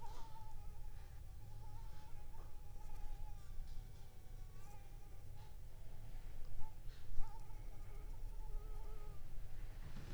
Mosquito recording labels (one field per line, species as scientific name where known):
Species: Anopheles arabiensis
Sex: female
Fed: unfed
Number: one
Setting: cup